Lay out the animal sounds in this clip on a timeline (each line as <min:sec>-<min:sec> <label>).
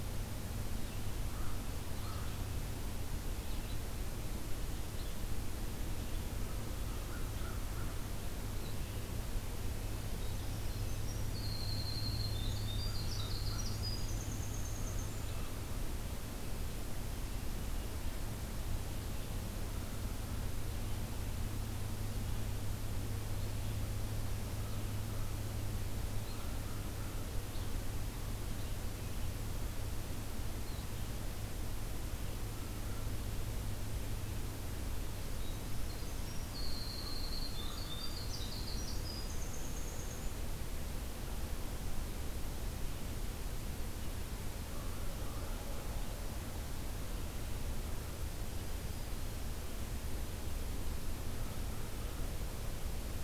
0:00.0-0:31.2 Red-eyed Vireo (Vireo olivaceus)
0:06.5-0:08.0 American Crow (Corvus brachyrhynchos)
0:10.2-0:15.3 Winter Wren (Troglodytes hiemalis)
0:12.8-0:13.7 American Crow (Corvus brachyrhynchos)
0:26.3-0:27.3 American Crow (Corvus brachyrhynchos)
0:35.4-0:40.3 Winter Wren (Troglodytes hiemalis)
0:37.0-0:38.1 American Crow (Corvus brachyrhynchos)
0:44.6-0:46.0 American Crow (Corvus brachyrhynchos)
0:48.5-0:49.5 Black-throated Green Warbler (Setophaga virens)
0:51.4-0:52.4 American Crow (Corvus brachyrhynchos)